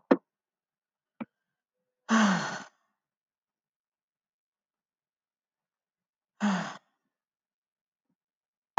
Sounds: Sigh